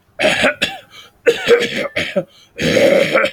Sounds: Throat clearing